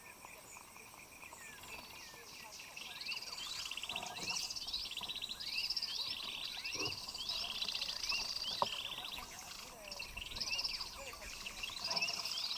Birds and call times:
African Emerald Cuckoo (Chrysococcyx cupreus): 0:01.4
Hunter's Cisticola (Cisticola hunteri): 0:05.0

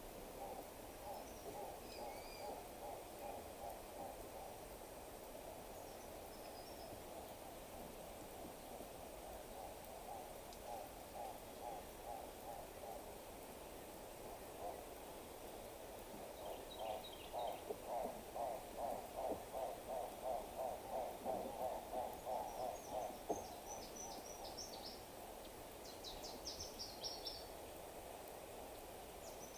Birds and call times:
Hartlaub's Turaco (Tauraco hartlaubi): 0:02.8, 0:11.1, 0:20.3
Common Bulbul (Pycnonotus barbatus): 0:17.1
Brown Woodland-Warbler (Phylloscopus umbrovirens): 0:26.5

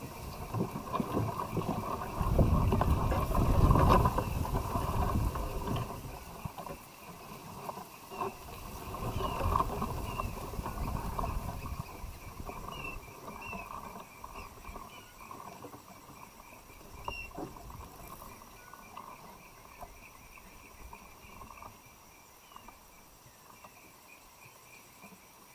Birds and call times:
Kikuyu White-eye (Zosterops kikuyuensis): 0:12.6, 0:17.0
Black-throated Apalis (Apalis jacksoni): 0:20.5

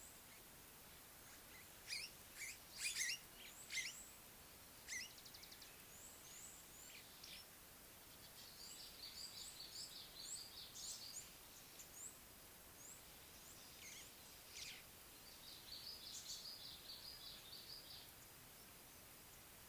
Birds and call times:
White-browed Sparrow-Weaver (Plocepasser mahali): 0:03.0, 0:14.6
Red-faced Crombec (Sylvietta whytii): 0:09.7, 0:16.6

